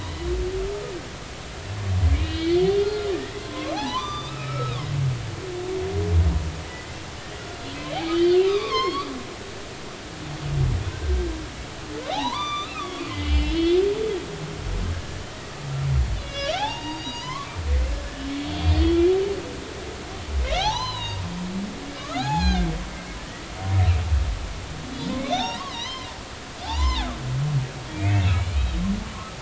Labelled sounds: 2.1	4.8	humpback whale, 0.80 to 5.4 kHz
6.7	9.1	humpback whale, 0.96 to 5.5 kHz
12.1	13.8	humpback whale, 0.80 to 6.0 kHz
14.9	15.2	humpback whale, 1.6 to 1.8 kHz
16.2	17.5	humpback whale, 0.80 to 5.4 kHz
18.3	19.1	humpback whale, 3.2 to 4.7 kHz
20.4	21.2	humpback whale, 0.80 to 5.2 kHz
22.0	22.7	humpback whale, 0.80 to 4.3 kHz
25.3	26.1	humpback whale, 0.80 to 6.3 kHz
26.6	27.1	humpback whale, 0.80 to 3.2 kHz
27.9	28.7	humpback whale, 2.2 to 4.3 kHz

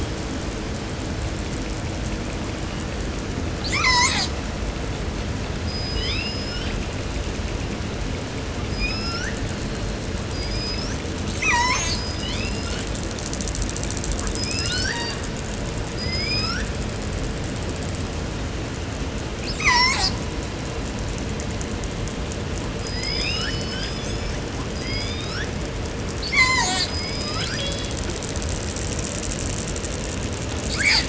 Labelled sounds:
3.4	4.5	killer whale, southern resident, 0.45 to 8.0 kHz
5.5	7.0	killer whale, southern resident, call S19, 0.95 to 8.0 kHz
8.5	9.5	killer whale, southern resident, call S19, 0.85 to 6.8 kHz
10.1	11.1	killer whale, southern resident, call S19, 0.70 to 8.0 kHz
11.2	12.2	killer whale, southern resident, call S36, 0.45 to 8.0 kHz
11.8	13.1	killer whale, southern resident, call S19, 0.49 to 6.5 kHz
14.1	15.2	killer whale, southern resident, call S19, 0.64 to 6.8 kHz
15.8	16.8	killer whale, southern resident, call S19, 0.76 to 6.9 kHz
19.4	20.2	killer whale, southern resident, call S36, 0.45 to 8.0 kHz
22.7	25.5	killer whale, southern resident, call S19, 0.78 to 8.0 kHz
26.0	27.0	killer whale, southern resident, call S36, 0.50 to 8.0 kHz
26.7	27.6	killer whale, southern resident, call S19, 0.51 to 8.0 kHz
27.2	28.1	killer whale, southern resident, call S02iii, 0.43 to 8.0 kHz
30.6	31.0	killer whale, southern resident, 0.58 to 8.0 kHz

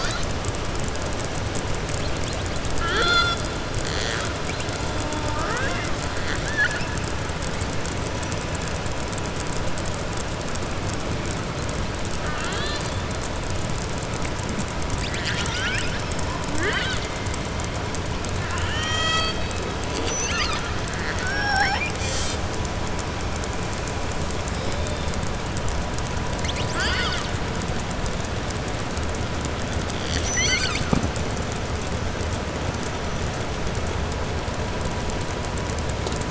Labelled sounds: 16.5	17.1	killer whale, southern resident, 0.34 to 4.7 kHz
18.4	19.5	killer whale, southern resident, 0.67 to 7.8 kHz

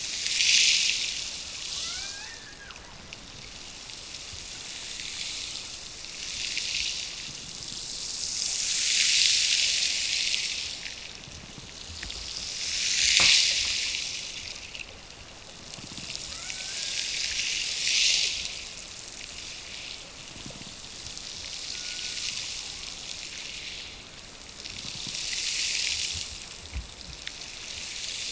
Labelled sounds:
1.7	2.8	killer whale, Bigg's (transient), Gulf of Alaska transient, 0.37 to 2.8 kHz
16.3	17.3	killer whale, Bigg's (transient), Gulf of Alaska transient, 1.1 to 2.4 kHz

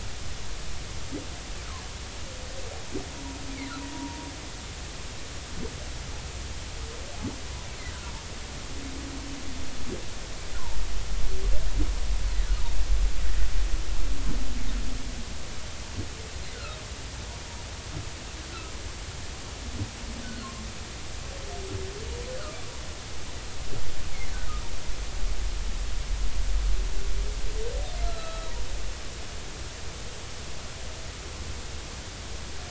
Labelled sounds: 3.9	4.2	humpback whale, 0.90 to 0.99 kHz
20.2	20.5	humpback whale, 1.3 to 1.6 kHz
28.1	28.5	humpback whale, 1.2 to 4.2 kHz

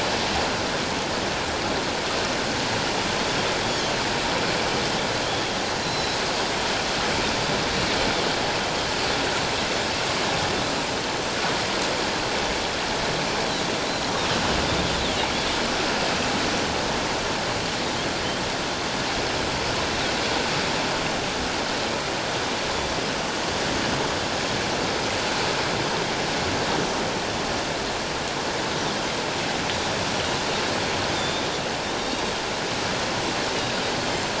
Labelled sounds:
3.6	3.9	Pacific white-sided dolphin, 3.1 to 3.4 kHz
5.8	6.2	Pacific white-sided dolphin, 3.9 to 4.2 kHz
15.0	15.3	Pacific white-sided dolphin, 2.8 to 4.0 kHz
31.2	31.5	Pacific white-sided dolphin, 3.4 to 3.8 kHz

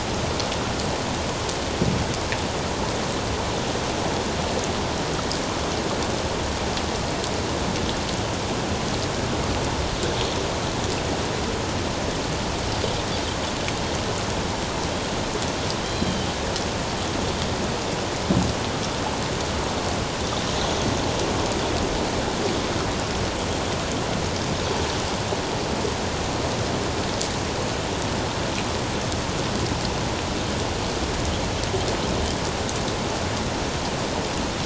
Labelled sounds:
15.8	16.3	Pacific white-sided dolphin, 3.0 to 4.1 kHz

